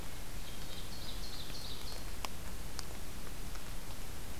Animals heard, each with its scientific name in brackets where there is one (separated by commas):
Hermit Thrush (Catharus guttatus), Ovenbird (Seiurus aurocapilla)